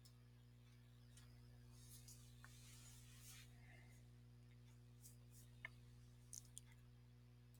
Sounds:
Cough